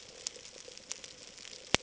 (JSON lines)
{"label": "ambient", "recorder": "HydroMoth"}